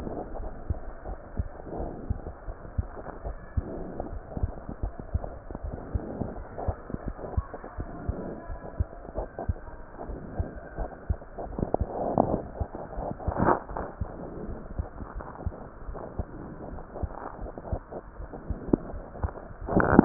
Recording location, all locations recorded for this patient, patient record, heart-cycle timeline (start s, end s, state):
aortic valve (AV)
aortic valve (AV)+pulmonary valve (PV)+tricuspid valve (TV)+mitral valve (MV)
#Age: Child
#Sex: Female
#Height: 131.0 cm
#Weight: 27.4 kg
#Pregnancy status: False
#Murmur: Absent
#Murmur locations: nan
#Most audible location: nan
#Systolic murmur timing: nan
#Systolic murmur shape: nan
#Systolic murmur grading: nan
#Systolic murmur pitch: nan
#Systolic murmur quality: nan
#Diastolic murmur timing: nan
#Diastolic murmur shape: nan
#Diastolic murmur grading: nan
#Diastolic murmur pitch: nan
#Diastolic murmur quality: nan
#Outcome: Abnormal
#Campaign: 2015 screening campaign
0.00	0.36	unannotated
0.36	0.50	S1
0.50	0.68	systole
0.68	0.80	S2
0.80	1.03	diastole
1.03	1.17	S1
1.17	1.35	systole
1.35	1.47	S2
1.47	1.76	diastole
1.76	1.90	S1
1.90	2.08	systole
2.08	2.22	S2
2.22	2.45	diastole
2.45	2.55	S1
2.55	2.76	systole
2.76	2.84	S2
2.84	3.24	diastole
3.24	3.38	S1
3.38	3.52	systole
3.52	3.66	S2
3.66	4.05	diastole
4.05	4.21	S1
4.21	4.38	systole
4.38	4.56	S2
4.56	4.78	diastole
4.78	4.92	S1
4.92	5.12	systole
5.12	5.22	S2
5.22	5.59	diastole
5.59	5.71	S1
5.71	5.88	systole
5.88	6.02	S2
6.02	6.34	diastole
6.34	6.47	S1
6.47	6.63	systole
6.63	6.75	S2
6.75	7.04	diastole
7.04	7.16	S1
7.16	7.32	systole
7.32	7.44	S2
7.44	7.75	diastole
7.75	7.90	S1
7.90	8.07	systole
8.07	8.22	S2
8.22	8.48	diastole
8.48	8.60	S1
8.60	8.78	systole
8.78	8.87	S2
8.87	9.15	diastole
9.15	9.26	S1
9.26	9.44	systole
9.44	9.60	S2
9.60	10.05	diastole
10.05	10.19	S1
10.19	10.36	systole
10.36	10.49	S2
10.49	10.75	diastole
10.75	10.88	S1
10.88	11.06	systole
11.06	11.20	S2
11.20	11.51	diastole
11.51	11.67	S1
11.67	11.79	systole
11.79	11.89	S2
11.89	12.20	diastole
12.20	12.38	S1
12.38	12.58	systole
12.58	12.72	S2
12.72	12.96	diastole
12.96	20.05	unannotated